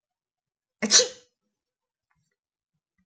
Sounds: Sneeze